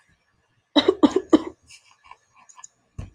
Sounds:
Cough